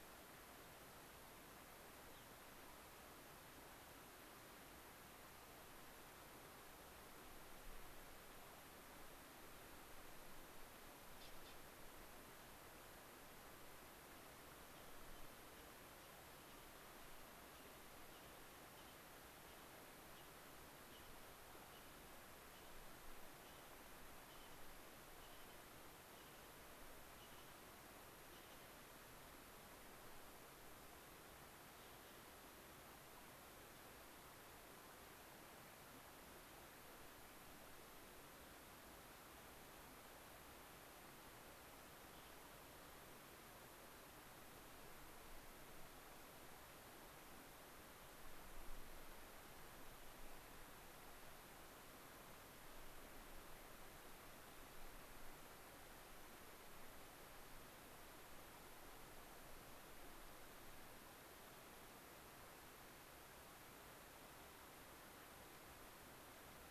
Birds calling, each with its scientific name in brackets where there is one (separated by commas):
Gray-crowned Rosy-Finch (Leucosticte tephrocotis)